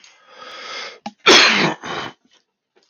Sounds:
Cough